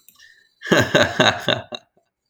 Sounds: Laughter